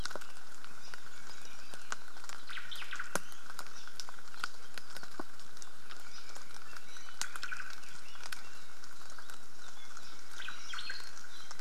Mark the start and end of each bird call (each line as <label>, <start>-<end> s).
Apapane (Himatione sanguinea), 0.0-0.1 s
Omao (Myadestes obscurus), 2.4-3.2 s
Iiwi (Drepanis coccinea), 3.1-3.5 s
Iiwi (Drepanis coccinea), 6.6-7.3 s
Omao (Myadestes obscurus), 7.1-7.9 s
Omao (Myadestes obscurus), 10.2-11.1 s
Iiwi (Drepanis coccinea), 10.7-11.1 s